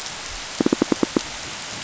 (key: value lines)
label: biophony, pulse
recorder: SoundTrap 500